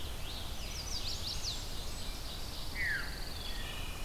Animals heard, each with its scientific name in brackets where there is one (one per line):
Ovenbird (Seiurus aurocapilla)
Scarlet Tanager (Piranga olivacea)
Blackburnian Warbler (Setophaga fusca)
Pine Warbler (Setophaga pinus)
Wood Thrush (Hylocichla mustelina)
Veery (Catharus fuscescens)
Chestnut-sided Warbler (Setophaga pensylvanica)